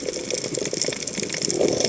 {"label": "biophony", "recorder": "HydroMoth"}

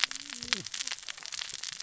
{"label": "biophony, cascading saw", "recorder": "SoundTrap 600 or HydroMoth"}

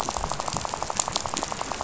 {"label": "biophony, rattle", "recorder": "SoundTrap 500"}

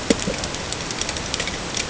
{"label": "ambient", "recorder": "HydroMoth"}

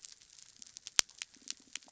{"label": "biophony", "recorder": "SoundTrap 300"}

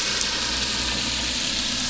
{"label": "anthrophony, boat engine", "recorder": "SoundTrap 500"}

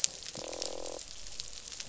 {"label": "biophony, croak", "recorder": "SoundTrap 500"}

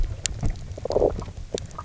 {"label": "biophony, low growl", "recorder": "SoundTrap 300"}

